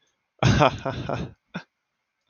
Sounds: Laughter